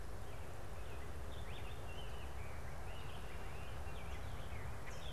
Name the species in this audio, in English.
Rose-breasted Grosbeak, Northern Cardinal